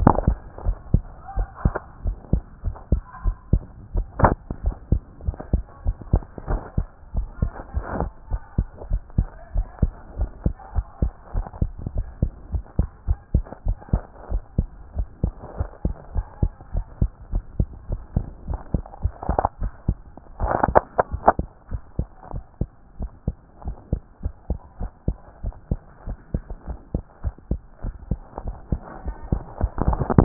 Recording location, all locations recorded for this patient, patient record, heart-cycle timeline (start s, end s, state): tricuspid valve (TV)
aortic valve (AV)+pulmonary valve (PV)+tricuspid valve (TV)+mitral valve (MV)
#Age: Child
#Sex: Male
#Height: 103.0 cm
#Weight: 18.8 kg
#Pregnancy status: False
#Murmur: Absent
#Murmur locations: nan
#Most audible location: nan
#Systolic murmur timing: nan
#Systolic murmur shape: nan
#Systolic murmur grading: nan
#Systolic murmur pitch: nan
#Systolic murmur quality: nan
#Diastolic murmur timing: nan
#Diastolic murmur shape: nan
#Diastolic murmur grading: nan
#Diastolic murmur pitch: nan
#Diastolic murmur quality: nan
#Outcome: Abnormal
#Campaign: 2014 screening campaign
0.00	4.64	unannotated
4.64	4.76	S1
4.76	4.90	systole
4.90	5.02	S2
5.02	5.26	diastole
5.26	5.36	S1
5.36	5.52	systole
5.52	5.62	S2
5.62	5.86	diastole
5.86	5.96	S1
5.96	6.12	systole
6.12	6.22	S2
6.22	6.48	diastole
6.48	6.60	S1
6.60	6.76	systole
6.76	6.86	S2
6.86	7.16	diastole
7.16	7.28	S1
7.28	7.40	systole
7.40	7.52	S2
7.52	7.74	diastole
7.74	7.86	S1
7.86	8.00	systole
8.00	8.10	S2
8.10	8.30	diastole
8.30	8.40	S1
8.40	8.56	systole
8.56	8.66	S2
8.66	8.90	diastole
8.90	9.02	S1
9.02	9.16	systole
9.16	9.28	S2
9.28	9.54	diastole
9.54	9.66	S1
9.66	9.80	systole
9.80	9.92	S2
9.92	10.18	diastole
10.18	10.30	S1
10.30	10.44	systole
10.44	10.54	S2
10.54	10.74	diastole
10.74	10.86	S1
10.86	11.00	systole
11.00	11.12	S2
11.12	11.34	diastole
11.34	11.46	S1
11.46	11.60	systole
11.60	11.70	S2
11.70	11.94	diastole
11.94	12.06	S1
12.06	12.22	systole
12.22	12.32	S2
12.32	12.52	diastole
12.52	12.64	S1
12.64	12.78	systole
12.78	12.88	S2
12.88	13.08	diastole
13.08	13.18	S1
13.18	13.32	systole
13.32	13.44	S2
13.44	13.66	diastole
13.66	13.76	S1
13.76	13.92	systole
13.92	14.02	S2
14.02	14.30	diastole
14.30	14.42	S1
14.42	14.56	systole
14.56	14.68	S2
14.68	14.96	diastole
14.96	15.08	S1
15.08	15.22	systole
15.22	15.34	S2
15.34	15.58	diastole
15.58	15.68	S1
15.68	15.84	systole
15.84	15.94	S2
15.94	16.14	diastole
16.14	16.26	S1
16.26	16.42	systole
16.42	16.52	S2
16.52	16.74	diastole
16.74	16.86	S1
16.86	17.00	systole
17.00	17.10	S2
17.10	17.32	diastole
17.32	17.44	S1
17.44	17.58	systole
17.58	17.68	S2
17.68	17.90	diastole
17.90	18.00	S1
18.00	18.14	systole
18.14	18.26	S2
18.26	18.48	diastole
18.48	18.60	S1
18.60	18.74	systole
18.74	18.84	S2
18.84	19.02	diastole
19.02	30.24	unannotated